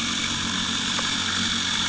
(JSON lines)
{"label": "anthrophony, boat engine", "recorder": "HydroMoth"}